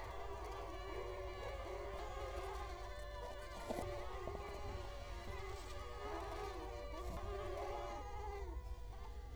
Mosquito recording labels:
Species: Culex quinquefasciatus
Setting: cup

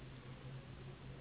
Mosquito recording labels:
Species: Anopheles gambiae s.s.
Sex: female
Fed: unfed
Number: one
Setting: insect culture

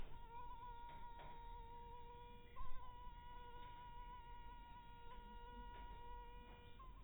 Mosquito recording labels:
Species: mosquito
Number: one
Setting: cup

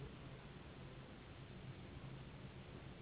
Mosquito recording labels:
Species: Anopheles gambiae s.s.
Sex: female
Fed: unfed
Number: one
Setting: insect culture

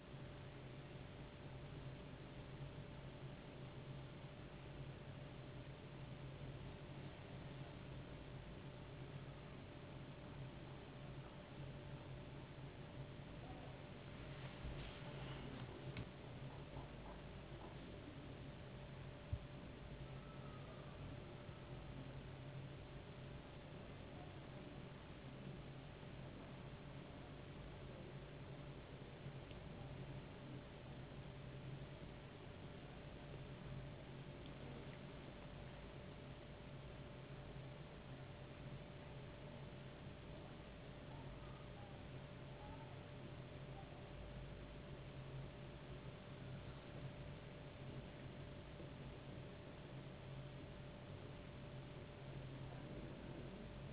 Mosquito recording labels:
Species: no mosquito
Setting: insect culture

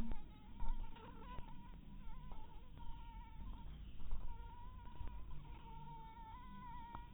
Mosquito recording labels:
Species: mosquito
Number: one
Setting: cup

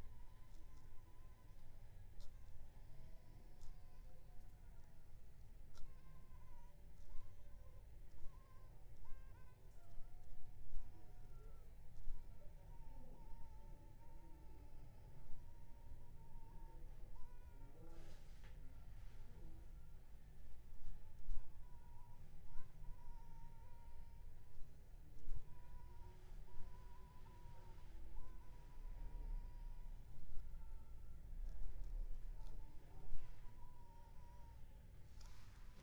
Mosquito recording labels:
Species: Anopheles funestus s.s.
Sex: female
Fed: unfed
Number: one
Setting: cup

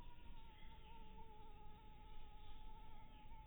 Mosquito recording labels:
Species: mosquito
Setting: cup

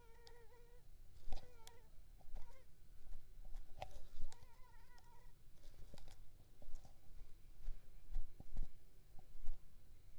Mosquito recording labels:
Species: Culex pipiens complex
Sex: female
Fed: unfed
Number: one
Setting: cup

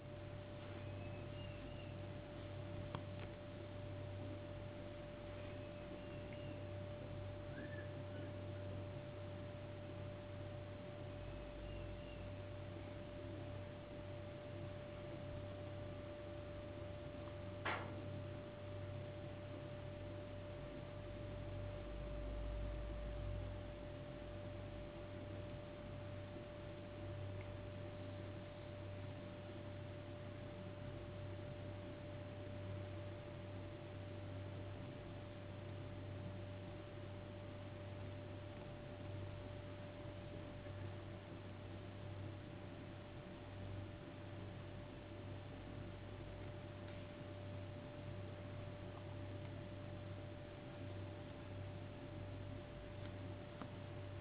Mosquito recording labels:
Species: no mosquito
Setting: insect culture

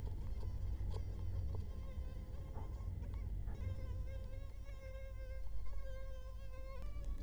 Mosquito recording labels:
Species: Culex quinquefasciatus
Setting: cup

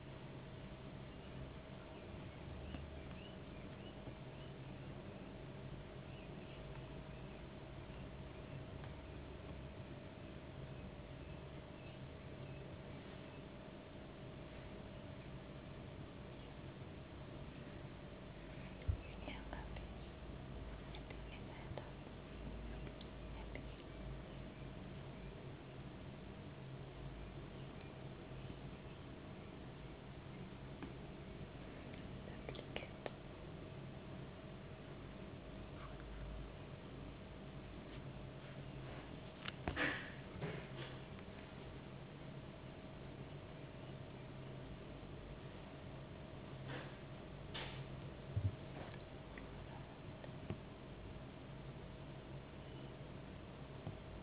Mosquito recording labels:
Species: no mosquito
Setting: insect culture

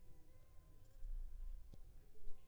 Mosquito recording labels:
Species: Anopheles funestus s.l.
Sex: female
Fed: unfed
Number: one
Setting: cup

